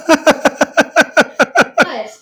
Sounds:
Laughter